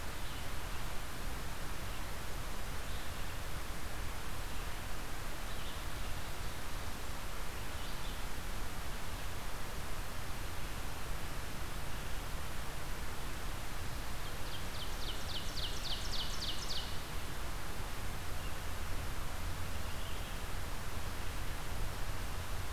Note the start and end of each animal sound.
[0.00, 22.72] Red-eyed Vireo (Vireo olivaceus)
[14.09, 17.00] Ovenbird (Seiurus aurocapilla)

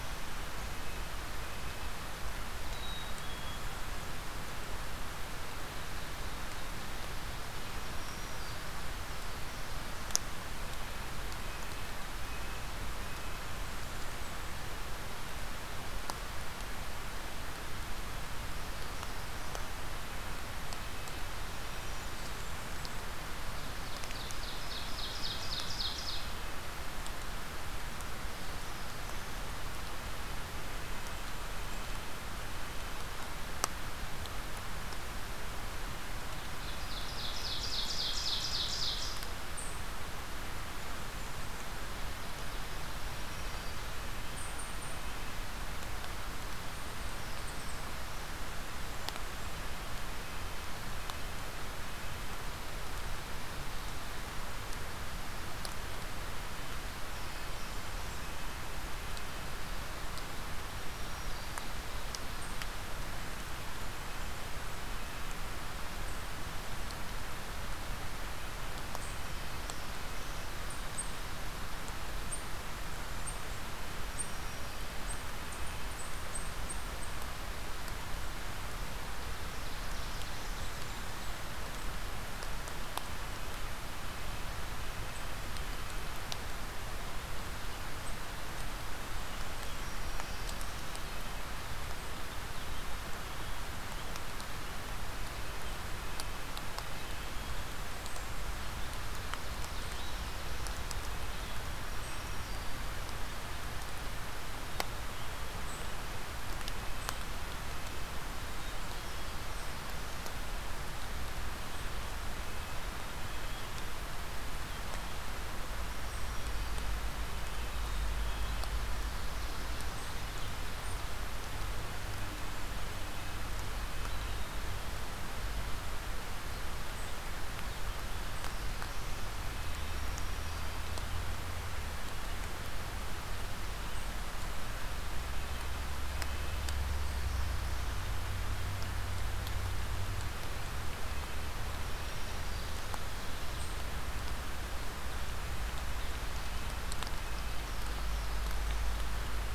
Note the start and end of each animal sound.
[0.24, 2.04] Red-breasted Nuthatch (Sitta canadensis)
[2.40, 3.71] Black-capped Chickadee (Poecile atricapillus)
[7.36, 8.90] Black-throated Green Warbler (Setophaga virens)
[11.28, 13.56] Red-breasted Nuthatch (Sitta canadensis)
[17.91, 19.84] Black-throated Blue Warbler (Setophaga caerulescens)
[20.62, 22.16] Red-breasted Nuthatch (Sitta canadensis)
[21.40, 23.19] Blackburnian Warbler (Setophaga fusca)
[23.10, 26.45] Ovenbird (Seiurus aurocapilla)
[24.90, 26.74] Red-breasted Nuthatch (Sitta canadensis)
[30.60, 32.19] Blackburnian Warbler (Setophaga fusca)
[31.20, 33.05] Red-breasted Nuthatch (Sitta canadensis)
[36.00, 39.31] Ovenbird (Seiurus aurocapilla)
[37.34, 38.81] Red-breasted Nuthatch (Sitta canadensis)
[39.36, 40.07] Eastern Chipmunk (Tamias striatus)
[42.51, 43.86] Black-throated Green Warbler (Setophaga virens)
[44.09, 47.95] Eastern Chipmunk (Tamias striatus)
[46.90, 48.41] Black-throated Blue Warbler (Setophaga caerulescens)
[56.65, 58.28] Black-throated Blue Warbler (Setophaga caerulescens)
[60.47, 61.93] Black-throated Green Warbler (Setophaga virens)
[62.30, 62.74] Eastern Chipmunk (Tamias striatus)
[65.92, 77.38] Eastern Chipmunk (Tamias striatus)
[68.30, 70.63] Red-breasted Nuthatch (Sitta canadensis)
[68.94, 70.57] Black-throated Blue Warbler (Setophaga caerulescens)
[73.89, 75.02] Black-throated Green Warbler (Setophaga virens)
[78.88, 81.32] Ovenbird (Seiurus aurocapilla)
[89.44, 90.77] Black-throated Green Warbler (Setophaga virens)
[95.37, 97.38] Red-breasted Nuthatch (Sitta canadensis)
[98.30, 100.80] Ovenbird (Seiurus aurocapilla)
[101.50, 102.97] Black-throated Green Warbler (Setophaga virens)
[105.42, 111.94] Eastern Chipmunk (Tamias striatus)
[106.52, 108.30] Red-breasted Nuthatch (Sitta canadensis)
[108.21, 109.52] Black-capped Chickadee (Poecile atricapillus)
[112.40, 113.83] Red-breasted Nuthatch (Sitta canadensis)
[112.77, 113.67] Black-capped Chickadee (Poecile atricapillus)
[115.59, 117.27] Black-throated Green Warbler (Setophaga virens)
[117.21, 118.78] Red-breasted Nuthatch (Sitta canadensis)
[117.67, 118.69] Black-capped Chickadee (Poecile atricapillus)
[119.79, 128.66] Eastern Chipmunk (Tamias striatus)
[123.19, 124.88] Wood Thrush (Hylocichla mustelina)
[129.54, 130.91] Black-throated Green Warbler (Setophaga virens)
[135.09, 136.82] Red-breasted Nuthatch (Sitta canadensis)
[141.54, 143.02] Black-throated Green Warbler (Setophaga virens)
[147.13, 149.14] Black-throated Blue Warbler (Setophaga caerulescens)

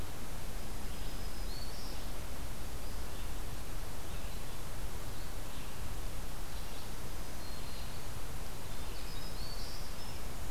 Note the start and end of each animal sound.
[0.00, 5.75] Red-eyed Vireo (Vireo olivaceus)
[0.42, 2.00] Black-throated Green Warbler (Setophaga virens)
[6.33, 10.50] Red-eyed Vireo (Vireo olivaceus)
[6.66, 8.17] Black-throated Green Warbler (Setophaga virens)
[8.36, 10.50] Winter Wren (Troglodytes hiemalis)
[8.67, 9.96] Black-throated Green Warbler (Setophaga virens)

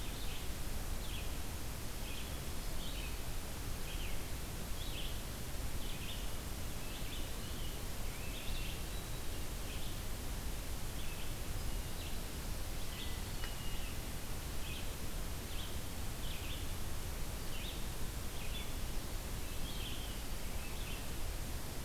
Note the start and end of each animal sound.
[0.00, 21.15] Red-eyed Vireo (Vireo olivaceus)
[8.36, 9.57] Hermit Thrush (Catharus guttatus)
[12.76, 14.14] Hermit Thrush (Catharus guttatus)

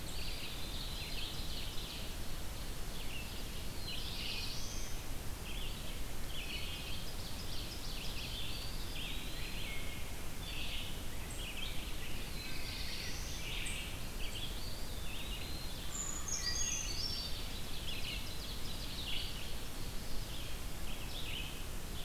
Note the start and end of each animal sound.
[0.00, 3.75] Ovenbird (Seiurus aurocapilla)
[0.00, 11.96] Red-eyed Vireo (Vireo olivaceus)
[0.02, 1.23] Eastern Wood-Pewee (Contopus virens)
[3.55, 5.16] Black-throated Blue Warbler (Setophaga caerulescens)
[6.34, 8.54] Ovenbird (Seiurus aurocapilla)
[8.43, 9.80] Eastern Wood-Pewee (Contopus virens)
[9.31, 9.87] Wood Thrush (Hylocichla mustelina)
[11.31, 14.10] Rose-breasted Grosbeak (Pheucticus ludovicianus)
[12.12, 13.62] Black-throated Blue Warbler (Setophaga caerulescens)
[13.39, 22.05] Red-eyed Vireo (Vireo olivaceus)
[14.38, 15.79] Eastern Wood-Pewee (Contopus virens)
[15.74, 17.02] Wood Thrush (Hylocichla mustelina)
[15.75, 17.72] Brown Creeper (Certhia americana)
[17.28, 20.43] Ovenbird (Seiurus aurocapilla)

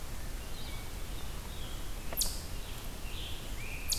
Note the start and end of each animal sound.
[0.00, 3.98] Eastern Chipmunk (Tamias striatus)
[0.00, 3.98] Red-eyed Vireo (Vireo olivaceus)
[2.84, 3.98] Scarlet Tanager (Piranga olivacea)

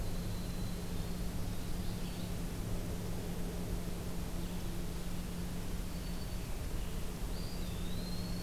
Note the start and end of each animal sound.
[0.00, 1.28] Winter Wren (Troglodytes hiemalis)
[0.00, 8.43] Red-eyed Vireo (Vireo olivaceus)
[5.63, 8.43] Winter Wren (Troglodytes hiemalis)
[7.12, 8.43] Eastern Wood-Pewee (Contopus virens)

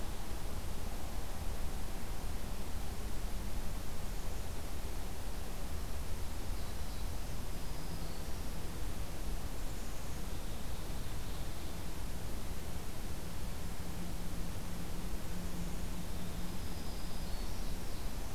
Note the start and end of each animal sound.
[7.40, 8.61] Black-throated Green Warbler (Setophaga virens)
[10.29, 11.98] Ovenbird (Seiurus aurocapilla)
[16.19, 17.90] Black-throated Green Warbler (Setophaga virens)

